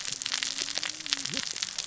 {"label": "biophony, cascading saw", "recorder": "SoundTrap 600 or HydroMoth"}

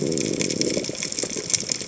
{"label": "biophony", "recorder": "HydroMoth"}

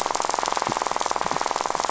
{"label": "biophony, rattle", "recorder": "SoundTrap 500"}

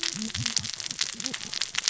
{"label": "biophony, cascading saw", "recorder": "SoundTrap 600 or HydroMoth"}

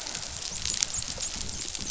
{"label": "biophony, dolphin", "recorder": "SoundTrap 500"}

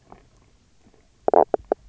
{"label": "biophony, knock croak", "recorder": "SoundTrap 300"}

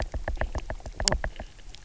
{"label": "biophony, knock croak", "recorder": "SoundTrap 300"}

